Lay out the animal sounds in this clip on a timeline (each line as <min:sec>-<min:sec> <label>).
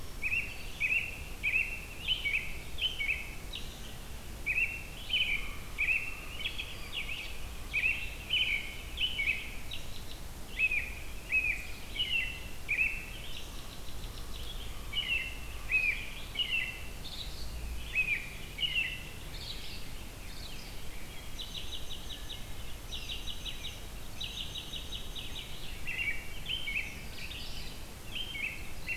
0:00.0-0:01.0 Red-eyed Vireo (Vireo olivaceus)
0:00.0-0:01.0 Black-throated Green Warbler (Setophaga virens)
0:00.1-0:04.0 American Robin (Turdus migratorius)
0:02.0-0:29.0 Red-eyed Vireo (Vireo olivaceus)
0:04.3-0:06.7 American Robin (Turdus migratorius)
0:06.9-0:14.5 American Robin (Turdus migratorius)
0:14.8-0:17.5 American Robin (Turdus migratorius)
0:17.8-0:29.0 American Robin (Turdus migratorius)